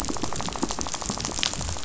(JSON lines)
{"label": "biophony, rattle", "recorder": "SoundTrap 500"}